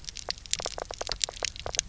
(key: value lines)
label: biophony, knock croak
recorder: SoundTrap 300